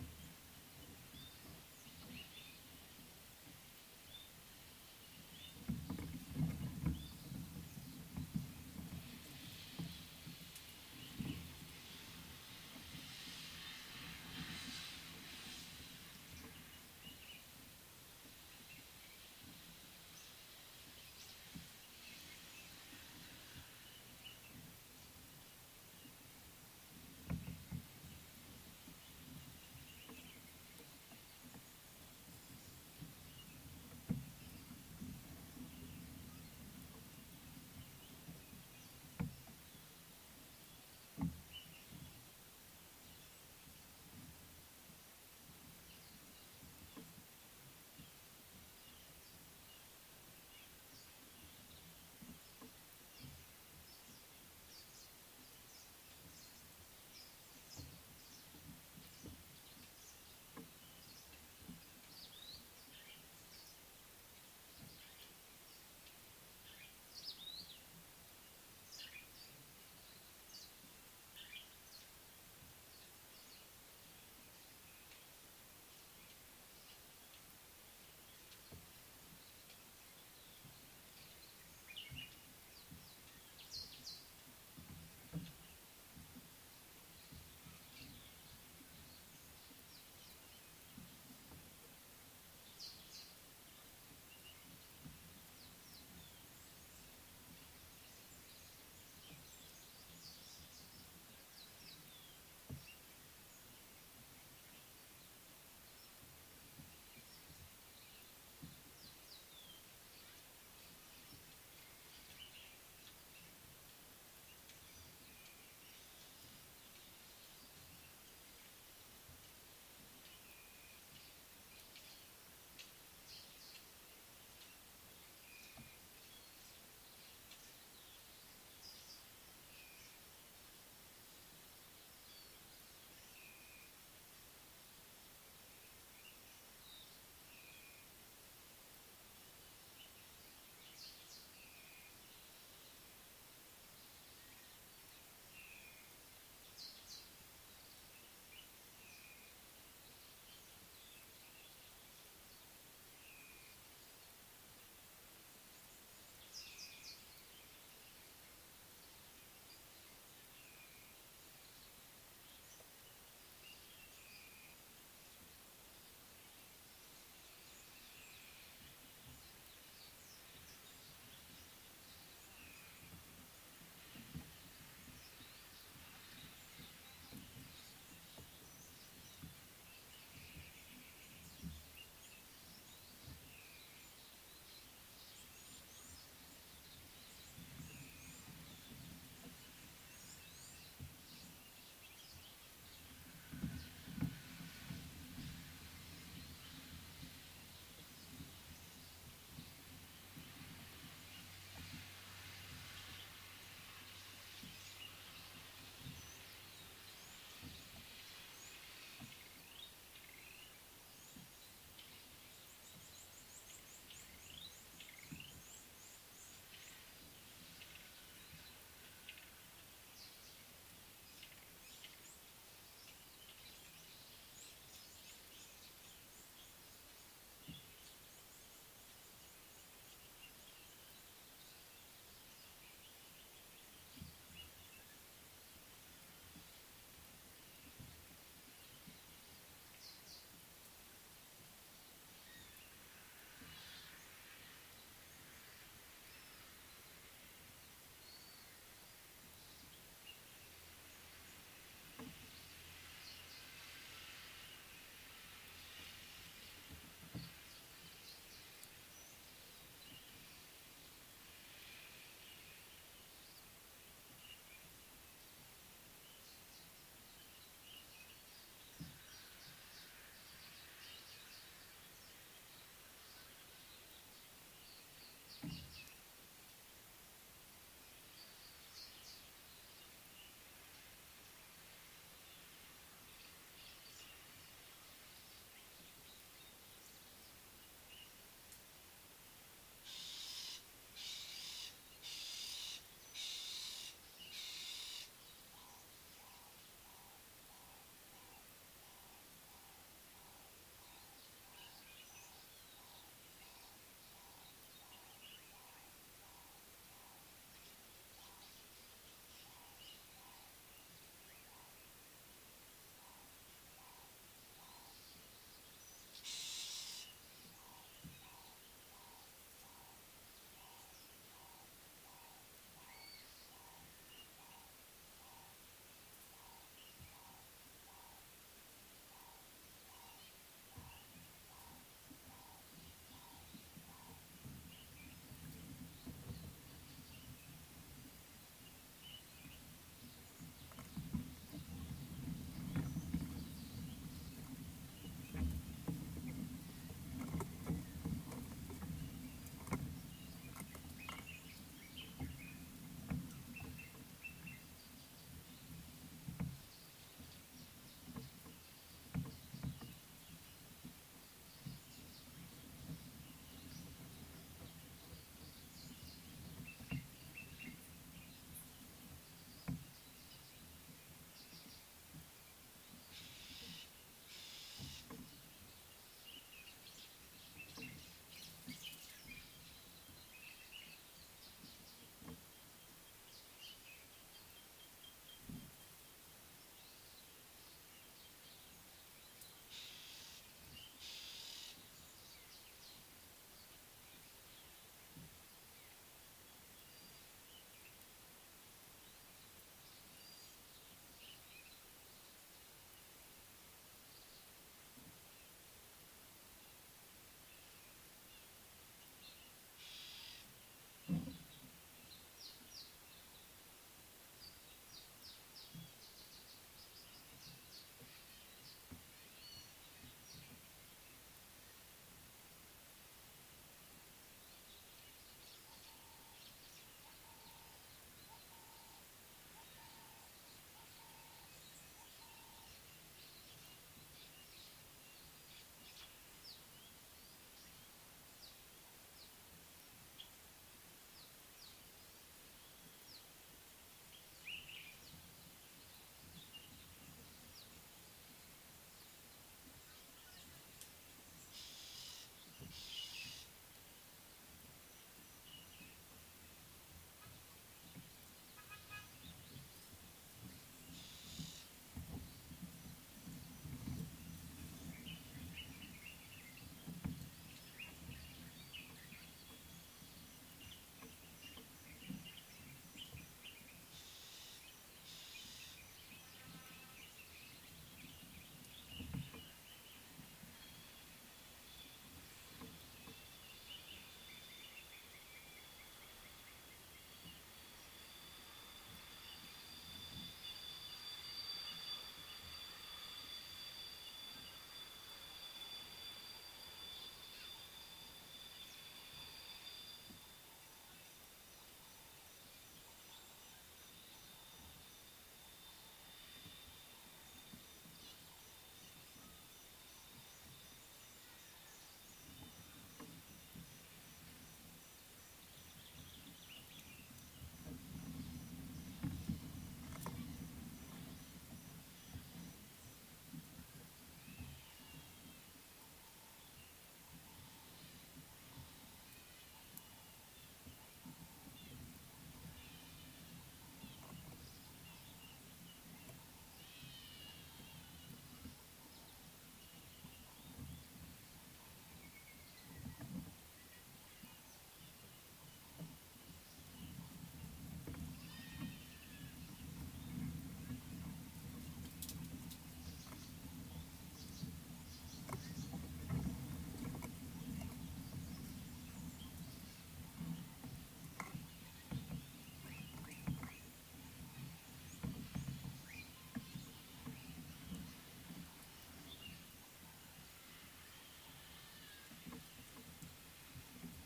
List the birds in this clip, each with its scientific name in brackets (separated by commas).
Common Bulbul (Pycnonotus barbatus), White-browed Robin-Chat (Cossypha heuglini), Ring-necked Dove (Streptopelia capicola), Nubian Woodpecker (Campethera nubica), Gray-backed Camaroptera (Camaroptera brevicaudata), Red-cheeked Cordonbleu (Uraeginthus bengalus), Pale White-eye (Zosterops flavilateralis), Yellow-crowned Canary (Serinus flavivertex)